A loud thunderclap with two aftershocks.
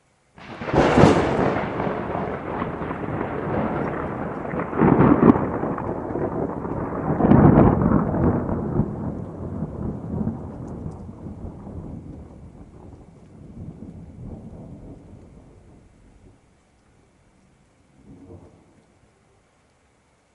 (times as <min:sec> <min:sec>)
0:00.4 0:15.9